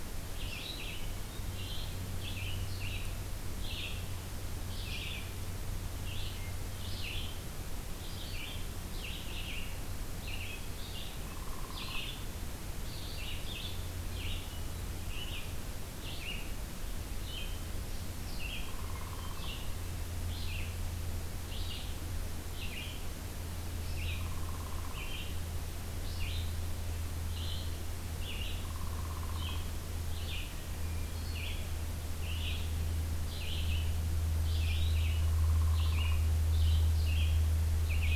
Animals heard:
Downy Woodpecker (Dryobates pubescens), Red-eyed Vireo (Vireo olivaceus), Hermit Thrush (Catharus guttatus)

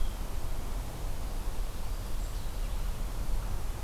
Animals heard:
Eastern Wood-Pewee (Contopus virens), Blue-headed Vireo (Vireo solitarius)

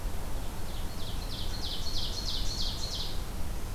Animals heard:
Ovenbird (Seiurus aurocapilla)

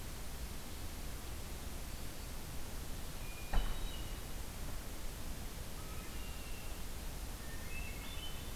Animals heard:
Red-winged Blackbird (Agelaius phoeniceus), Hermit Thrush (Catharus guttatus)

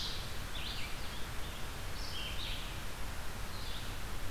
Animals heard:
Red-eyed Vireo (Vireo olivaceus)

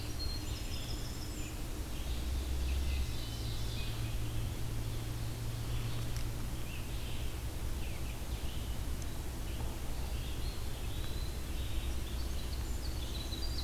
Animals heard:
Eastern Wood-Pewee (Contopus virens), Ovenbird (Seiurus aurocapilla), Winter Wren (Troglodytes hiemalis), Red-eyed Vireo (Vireo olivaceus)

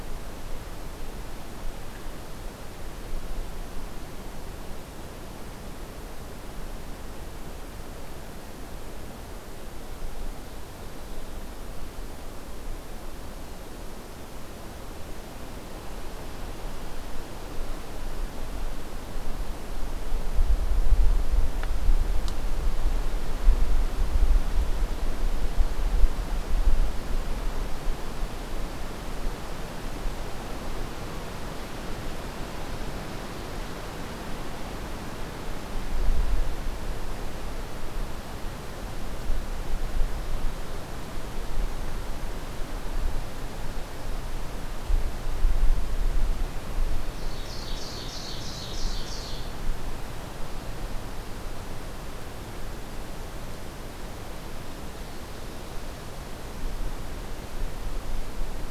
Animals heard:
Ovenbird (Seiurus aurocapilla)

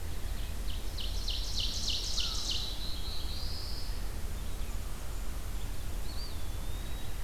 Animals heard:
Blackburnian Warbler (Setophaga fusca), Eastern Wood-Pewee (Contopus virens), Black-throated Blue Warbler (Setophaga caerulescens), Ovenbird (Seiurus aurocapilla), American Crow (Corvus brachyrhynchos)

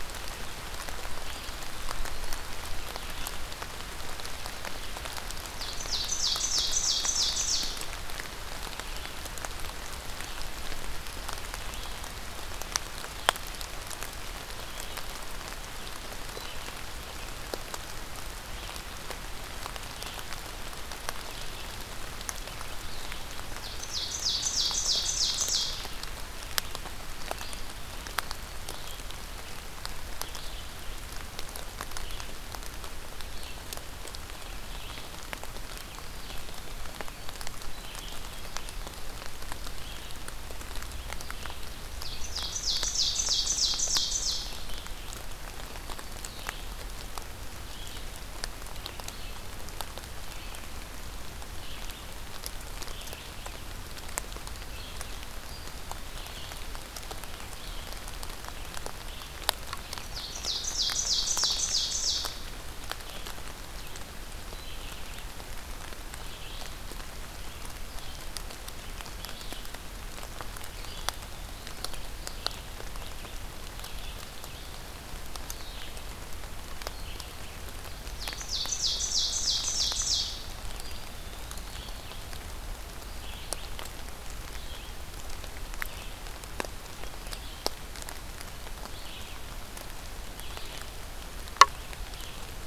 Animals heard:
Red-eyed Vireo (Vireo olivaceus), Ovenbird (Seiurus aurocapilla), Eastern Wood-Pewee (Contopus virens)

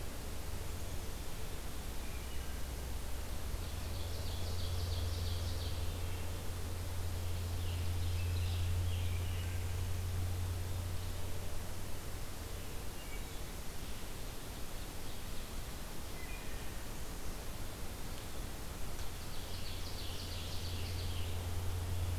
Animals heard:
Wood Thrush (Hylocichla mustelina), Scarlet Tanager (Piranga olivacea), Ovenbird (Seiurus aurocapilla)

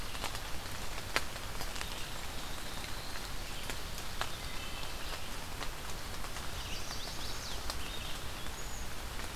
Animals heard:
Cedar Waxwing (Bombycilla cedrorum), Wood Thrush (Hylocichla mustelina), Red-eyed Vireo (Vireo olivaceus), Black-throated Blue Warbler (Setophaga caerulescens), Chestnut-sided Warbler (Setophaga pensylvanica)

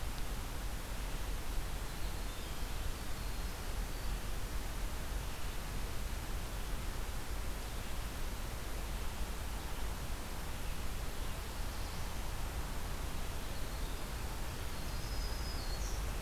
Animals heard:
Black-throated Green Warbler (Setophaga virens), Winter Wren (Troglodytes hiemalis), Black-throated Blue Warbler (Setophaga caerulescens)

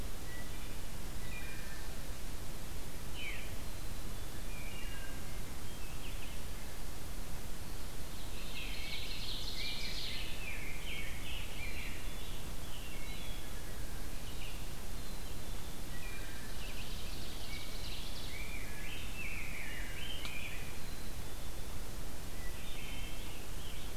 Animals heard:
Rose-breasted Grosbeak (Pheucticus ludovicianus), Wood Thrush (Hylocichla mustelina), Veery (Catharus fuscescens), Ovenbird (Seiurus aurocapilla), Black-capped Chickadee (Poecile atricapillus)

